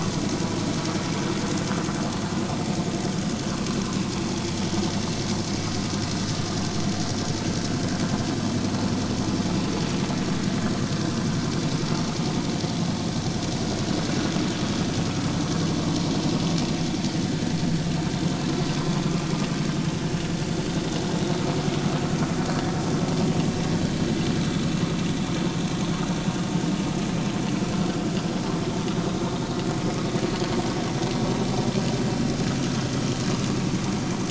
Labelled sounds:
17.3	17.6	vessel noise, 1.7 to 1.8 kHz

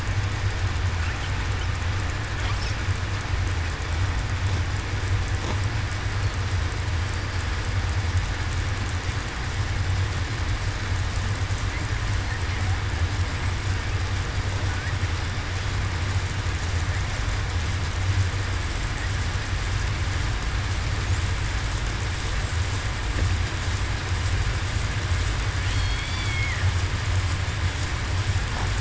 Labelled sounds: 25.7	26.0	killer whale, southern resident, 4.3 to 4.5 kHz

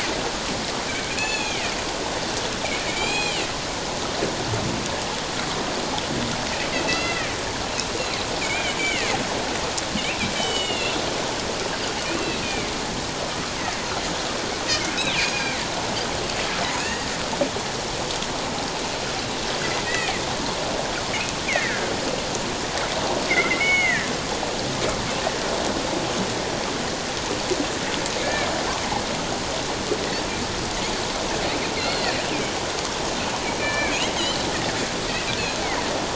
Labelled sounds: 1.2	1.7	Pacific white-sided dolphin, 1.7 to 7.1 kHz
2.9	3.5	Pacific white-sided dolphin, 2.1 to 7.5 kHz
6.8	7.3	Pacific white-sided dolphin, 1.7 to 4.1 kHz
8.4	9.1	Pacific white-sided dolphin, 1.7 to 3.2 kHz
10.0	11.0	Pacific white-sided dolphin, 2.0 to 7.8 kHz
12.0	12.7	Pacific white-sided dolphin, 2.0 to 2.8 kHz
15.0	15.6	Pacific white-sided dolphin, 2.1 to 6.7 kHz
16.8	17.1	Pacific white-sided dolphin, 1.7 to 2.9 kHz
19.9	20.2	Pacific white-sided dolphin, 1.8 to 2.7 kHz
21.5	21.9	Pacific white-sided dolphin, 1.4 to 2.5 kHz
23.3	24.1	Pacific white-sided dolphin, 1.6 to 6.7 kHz
28.2	28.5	Pacific white-sided dolphin, 2.1 to 2.4 kHz
31.8	32.1	Pacific white-sided dolphin, 4.0 to 4.4 kHz
33.6	33.9	Pacific white-sided dolphin, 1.5 to 4.1 kHz
35.4	35.6	Pacific white-sided dolphin, 6.2 to 7.0 kHz

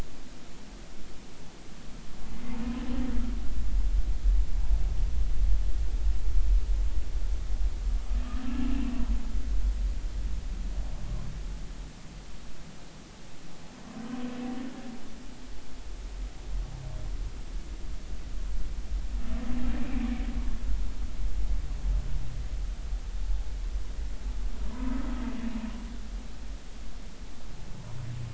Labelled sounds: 8.5	8.9	humpback whale, 2.5 to 2.9 kHz
19.8	20.1	humpback whale, 2.3 to 2.5 kHz
24.7	25.0	humpback whale, 0.93 to 1.2 kHz

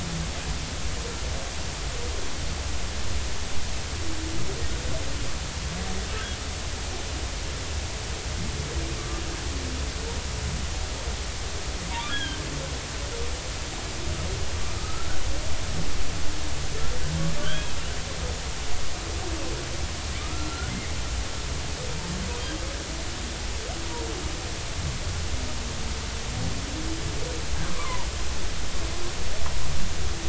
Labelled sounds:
9.0	9.2	humpback whale, 1.1 to 1.2 kHz
12.1	12.4	humpback whale, 1.5 to 3.4 kHz
14.8	15.1	humpback whale, 1.2 to 1.4 kHz
17.4	17.7	humpback whale, 1.4 to 3.5 kHz
20.2	20.9	humpback whale, 1.2 to 2.2 kHz
27.7	28.1	humpback whale, 0.83 to 1.2 kHz

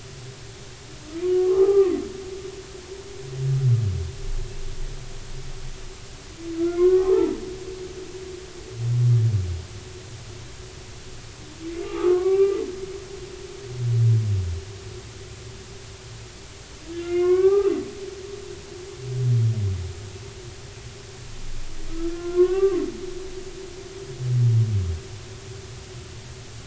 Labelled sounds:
1.2	2.9	humpback whale, 0.80 to 1.3 kHz
6.6	7.4	humpback whale, 0.83 to 2.2 kHz
11.8	12.6	humpback whale, 0.80 to 2.4 kHz
16.9	17.9	humpback whale, 0.80 to 2.9 kHz
21.9	22.8	humpback whale, 0.99 to 1.6 kHz

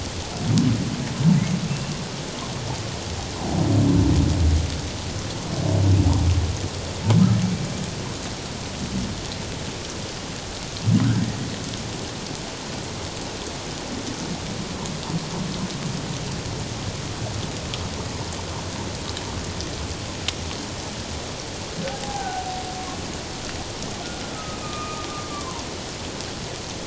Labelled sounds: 22.0	22.6	humpback whale, 0.78 to 1.6 kHz
24.3	25.7	humpback whale, 0.88 to 2.5 kHz

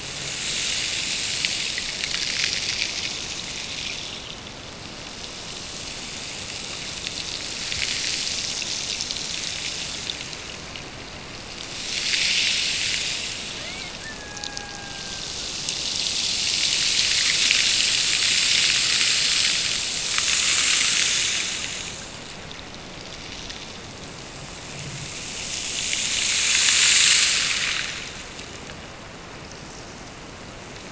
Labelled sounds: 13.5	15.4	killer whale, Bigg's (transient), Gulf of Alaska transient, 0.43 to 2.6 kHz

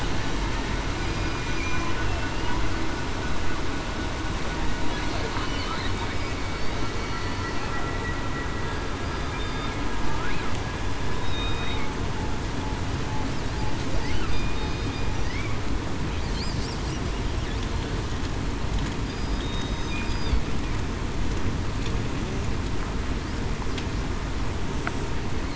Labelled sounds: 1.0	1.4	killer whale, southern resident, 4.8 to 4.9 kHz
2.0	2.4	killer whale, southern resident, 2.6 to 2.9 kHz
5.4	5.8	killer whale, southern resident, 2.9 to 3.0 kHz
9.3	9.7	killer whale, southern resident, 3.6 to 3.7 kHz
11.2	11.8	killer whale, southern resident, 2.4 to 3.9 kHz
14.5	14.9	killer whale, southern resident, 4.9 to 5.0 kHz
19.0	19.4	killer whale, southern resident, 4.8 to 5.0 kHz

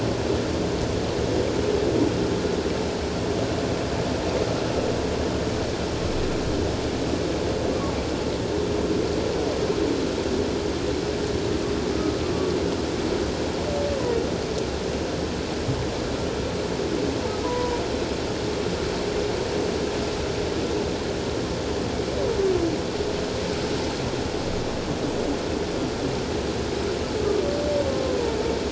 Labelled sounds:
17.4	17.8	humpback whale, 0.91 to 1.0 kHz
27.9	28.4	humpback whale, 0.88 to 1.1 kHz

